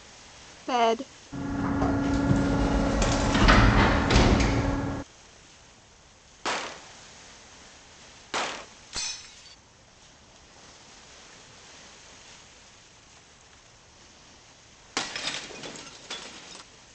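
At 0.68 seconds, someone says "bed". Then, at 1.32 seconds, there is the loud sound of a sliding door. Next, at 6.42 seconds, gunfire can be heard. Following that, at 8.89 seconds, glass shatters. Finally, at 14.93 seconds, glass shatters.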